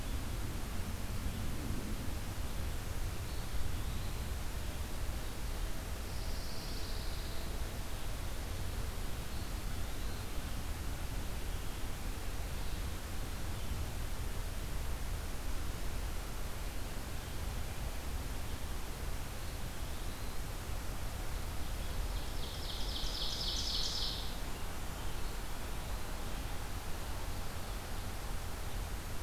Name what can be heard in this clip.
Eastern Wood-Pewee, Pine Warbler, Ovenbird